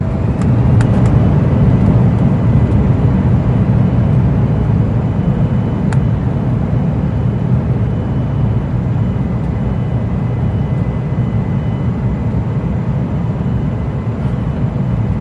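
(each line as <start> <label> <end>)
0.0 The steady, patterned sound of an airplane taking off from inside the cabin. 15.2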